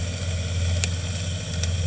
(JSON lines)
{"label": "anthrophony, boat engine", "recorder": "HydroMoth"}